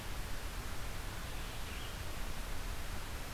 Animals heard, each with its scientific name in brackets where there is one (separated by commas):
Red-eyed Vireo (Vireo olivaceus)